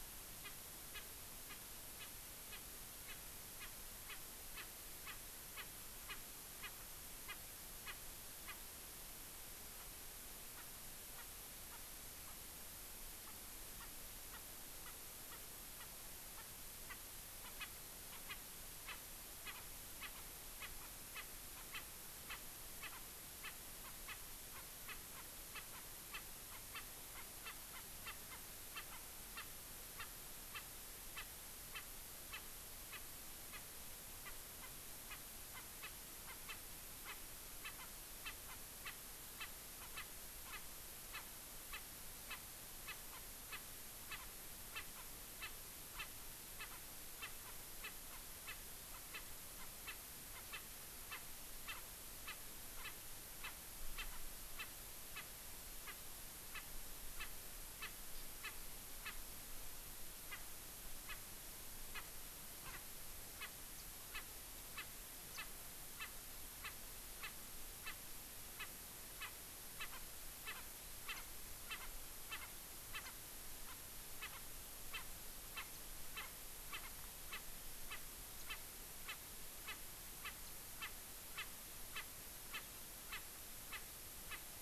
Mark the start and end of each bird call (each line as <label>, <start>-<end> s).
Erckel's Francolin (Pternistis erckelii), 0.4-0.5 s
Erckel's Francolin (Pternistis erckelii), 0.9-1.1 s
Erckel's Francolin (Pternistis erckelii), 1.5-1.6 s
Erckel's Francolin (Pternistis erckelii), 2.0-2.1 s
Erckel's Francolin (Pternistis erckelii), 2.5-2.6 s
Erckel's Francolin (Pternistis erckelii), 3.1-3.2 s
Erckel's Francolin (Pternistis erckelii), 3.6-3.7 s
Erckel's Francolin (Pternistis erckelii), 4.1-4.2 s
Erckel's Francolin (Pternistis erckelii), 4.5-4.7 s
Erckel's Francolin (Pternistis erckelii), 5.1-5.2 s
Erckel's Francolin (Pternistis erckelii), 5.6-5.7 s
Erckel's Francolin (Pternistis erckelii), 6.1-6.2 s
Erckel's Francolin (Pternistis erckelii), 6.6-6.7 s
Erckel's Francolin (Pternistis erckelii), 7.3-7.4 s
Erckel's Francolin (Pternistis erckelii), 7.9-8.0 s
Erckel's Francolin (Pternistis erckelii), 8.5-8.6 s
Erckel's Francolin (Pternistis erckelii), 10.6-10.7 s
Erckel's Francolin (Pternistis erckelii), 11.2-11.3 s
Erckel's Francolin (Pternistis erckelii), 11.7-11.8 s
Erckel's Francolin (Pternistis erckelii), 13.3-13.4 s
Erckel's Francolin (Pternistis erckelii), 13.8-13.9 s
Erckel's Francolin (Pternistis erckelii), 14.3-14.5 s
Erckel's Francolin (Pternistis erckelii), 14.9-15.0 s
Erckel's Francolin (Pternistis erckelii), 15.3-15.4 s
Erckel's Francolin (Pternistis erckelii), 15.8-15.9 s
Erckel's Francolin (Pternistis erckelii), 16.4-16.5 s
Erckel's Francolin (Pternistis erckelii), 16.9-17.0 s
Erckel's Francolin (Pternistis erckelii), 17.5-17.7 s
Erckel's Francolin (Pternistis erckelii), 18.3-18.4 s
Erckel's Francolin (Pternistis erckelii), 18.9-19.0 s
Erckel's Francolin (Pternistis erckelii), 19.5-19.6 s
Erckel's Francolin (Pternistis erckelii), 20.0-20.1 s
Erckel's Francolin (Pternistis erckelii), 20.6-20.7 s
Erckel's Francolin (Pternistis erckelii), 21.2-21.3 s
Erckel's Francolin (Pternistis erckelii), 21.8-21.9 s
Erckel's Francolin (Pternistis erckelii), 22.3-22.4 s
Erckel's Francolin (Pternistis erckelii), 22.8-23.1 s
Erckel's Francolin (Pternistis erckelii), 23.5-23.6 s
Erckel's Francolin (Pternistis erckelii), 23.9-24.2 s
Erckel's Francolin (Pternistis erckelii), 24.6-25.3 s
Erckel's Francolin (Pternistis erckelii), 25.6-26.2 s
Erckel's Francolin (Pternistis erckelii), 26.5-26.9 s
Erckel's Francolin (Pternistis erckelii), 27.2-28.4 s
Erckel's Francolin (Pternistis erckelii), 28.8-29.0 s
Erckel's Francolin (Pternistis erckelii), 29.4-29.5 s
Erckel's Francolin (Pternistis erckelii), 30.0-30.1 s
Erckel's Francolin (Pternistis erckelii), 30.6-30.7 s
Erckel's Francolin (Pternistis erckelii), 31.2-31.3 s
Erckel's Francolin (Pternistis erckelii), 31.7-31.9 s
Erckel's Francolin (Pternistis erckelii), 32.3-32.5 s
Erckel's Francolin (Pternistis erckelii), 32.9-33.0 s
Erckel's Francolin (Pternistis erckelii), 34.3-34.4 s
Erckel's Francolin (Pternistis erckelii), 35.1-35.2 s
Erckel's Francolin (Pternistis erckelii), 35.6-36.0 s
Erckel's Francolin (Pternistis erckelii), 36.3-36.6 s
Erckel's Francolin (Pternistis erckelii), 37.1-37.2 s
Erckel's Francolin (Pternistis erckelii), 37.7-37.9 s
Erckel's Francolin (Pternistis erckelii), 38.3-38.6 s
Erckel's Francolin (Pternistis erckelii), 38.9-39.0 s
Erckel's Francolin (Pternistis erckelii), 39.4-39.5 s
Erckel's Francolin (Pternistis erckelii), 39.8-40.1 s
Erckel's Francolin (Pternistis erckelii), 40.5-40.6 s
Erckel's Francolin (Pternistis erckelii), 41.1-41.3 s
Erckel's Francolin (Pternistis erckelii), 41.7-41.9 s
Erckel's Francolin (Pternistis erckelii), 42.3-42.4 s
Erckel's Francolin (Pternistis erckelii), 42.9-43.2 s
Erckel's Francolin (Pternistis erckelii), 43.5-43.6 s
Erckel's Francolin (Pternistis erckelii), 44.1-44.2 s
Erckel's Francolin (Pternistis erckelii), 44.8-45.1 s
Erckel's Francolin (Pternistis erckelii), 45.4-45.5 s
Erckel's Francolin (Pternistis erckelii), 46.0-46.1 s
Erckel's Francolin (Pternistis erckelii), 46.6-46.7 s
Erckel's Francolin (Pternistis erckelii), 47.2-47.6 s
Erckel's Francolin (Pternistis erckelii), 47.9-48.6 s
Erckel's Francolin (Pternistis erckelii), 48.9-49.3 s
Erckel's Francolin (Pternistis erckelii), 49.6-50.0 s
Erckel's Francolin (Pternistis erckelii), 50.4-50.7 s
Erckel's Francolin (Pternistis erckelii), 51.1-51.3 s
Erckel's Francolin (Pternistis erckelii), 51.7-51.8 s
Erckel's Francolin (Pternistis erckelii), 52.3-52.4 s
Erckel's Francolin (Pternistis erckelii), 52.8-53.0 s
Erckel's Francolin (Pternistis erckelii), 54.0-54.1 s
Erckel's Francolin (Pternistis erckelii), 54.6-54.7 s
Erckel's Francolin (Pternistis erckelii), 55.2-55.3 s
Erckel's Francolin (Pternistis erckelii), 55.9-56.0 s
Erckel's Francolin (Pternistis erckelii), 56.6-56.7 s
Erckel's Francolin (Pternistis erckelii), 57.2-57.3 s
Erckel's Francolin (Pternistis erckelii), 57.8-57.9 s
Erckel's Francolin (Pternistis erckelii), 58.4-58.6 s
Erckel's Francolin (Pternistis erckelii), 59.1-59.2 s
Erckel's Francolin (Pternistis erckelii), 60.3-60.4 s
Erckel's Francolin (Pternistis erckelii), 61.1-61.2 s
Erckel's Francolin (Pternistis erckelii), 61.9-62.1 s
Erckel's Francolin (Pternistis erckelii), 62.7-62.8 s
Erckel's Francolin (Pternistis erckelii), 63.4-63.5 s
Erckel's Francolin (Pternistis erckelii), 64.2-64.3 s
Erckel's Francolin (Pternistis erckelii), 64.8-64.9 s
Erckel's Francolin (Pternistis erckelii), 65.4-65.5 s
Erckel's Francolin (Pternistis erckelii), 66.0-66.1 s
Erckel's Francolin (Pternistis erckelii), 67.2-67.3 s
Erckel's Francolin (Pternistis erckelii), 67.9-68.0 s
Erckel's Francolin (Pternistis erckelii), 68.6-68.7 s
Erckel's Francolin (Pternistis erckelii), 69.2-69.3 s
Erckel's Francolin (Pternistis erckelii), 69.8-70.0 s
Erckel's Francolin (Pternistis erckelii), 70.5-70.7 s
Erckel's Francolin (Pternistis erckelii), 71.1-71.2 s
Erckel's Francolin (Pternistis erckelii), 71.7-71.9 s
Erckel's Francolin (Pternistis erckelii), 72.3-72.5 s
Erckel's Francolin (Pternistis erckelii), 73.0-73.2 s
Erckel's Francolin (Pternistis erckelii), 73.7-73.8 s
Erckel's Francolin (Pternistis erckelii), 74.2-74.5 s
Erckel's Francolin (Pternistis erckelii), 75.0-75.1 s
Erckel's Francolin (Pternistis erckelii), 75.6-75.7 s
Erckel's Francolin (Pternistis erckelii), 76.2-76.3 s
Erckel's Francolin (Pternistis erckelii), 76.7-76.8 s
Erckel's Francolin (Pternistis erckelii), 77.3-77.5 s
Erckel's Francolin (Pternistis erckelii), 77.9-78.0 s
Erckel's Francolin (Pternistis erckelii), 78.5-78.6 s
Erckel's Francolin (Pternistis erckelii), 79.1-79.2 s
Erckel's Francolin (Pternistis erckelii), 79.7-79.8 s
Erckel's Francolin (Pternistis erckelii), 80.3-80.4 s
Erckel's Francolin (Pternistis erckelii), 80.8-81.0 s
Erckel's Francolin (Pternistis erckelii), 81.4-81.5 s
Erckel's Francolin (Pternistis erckelii), 82.0-82.1 s
Erckel's Francolin (Pternistis erckelii), 82.5-82.7 s
Erckel's Francolin (Pternistis erckelii), 83.1-83.2 s
Erckel's Francolin (Pternistis erckelii), 83.7-83.8 s
Erckel's Francolin (Pternistis erckelii), 84.3-84.4 s